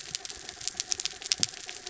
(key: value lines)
label: anthrophony, mechanical
recorder: SoundTrap 300